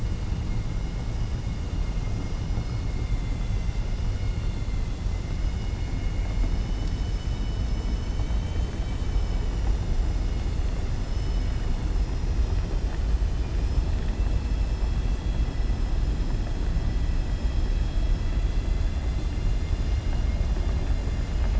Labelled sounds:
3.0	3.8	vessel noise, 2.0 to 4.2 kHz
7.9	9.4	vessel noise, 2.2 to 3.9 kHz

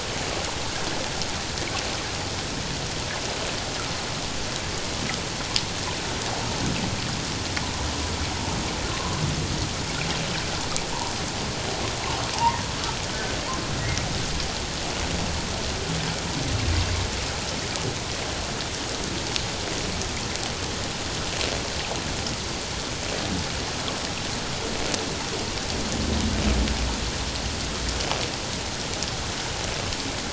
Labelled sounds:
8.9	9.2	humpback whale, 0.97 to 1.1 kHz
12.3	12.6	humpback whale, 0.84 to 1.1 kHz

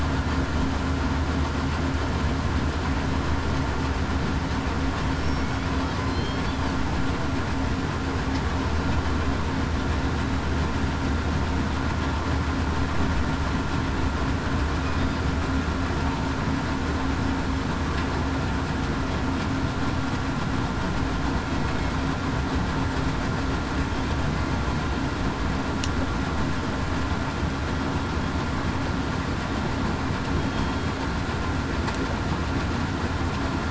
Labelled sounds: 6.0	6.4	killer whale, southern resident, 4.1 to 4.3 kHz
30.4	30.9	killer whale, southern resident, 3.2 to 3.3 kHz

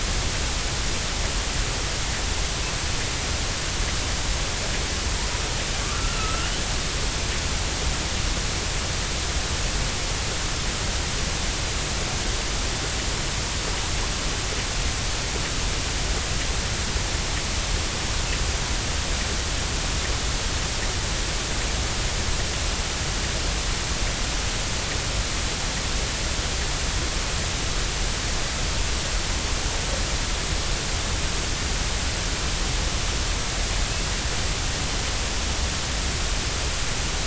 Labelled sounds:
5.9	6.5	killer whale, 1.2 to 1.5 kHz

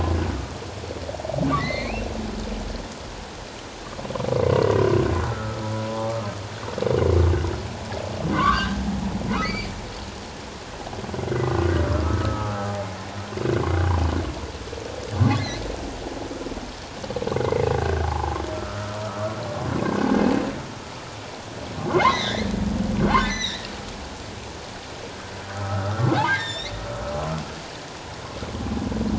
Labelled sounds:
1.5	2.1	humpback whale, 1.8 to 4.5 kHz
4.5	4.8	humpback whale, 1.8 to 2.0 kHz
5.2	6.2	humpback whale, 0.78 to 1.5 kHz
8.3	8.8	humpback whale, 0.97 to 1.7 kHz
9.4	9.7	humpback whale, 1.9 to 4.9 kHz
11.3	12.8	humpback whale, 0.78 to 2.1 kHz
15.2	15.7	humpback whale, 1.9 to 4.2 kHz
17.8	20.2	humpback whale, 0.78 to 1.7 kHz
21.9	23.7	humpback whale, 1.3 to 6.2 kHz
25.6	26.7	humpback whale, 0.78 to 7.6 kHz

